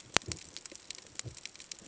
{"label": "ambient", "recorder": "HydroMoth"}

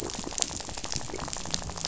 {"label": "biophony, rattle", "recorder": "SoundTrap 500"}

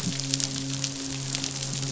{"label": "biophony, midshipman", "recorder": "SoundTrap 500"}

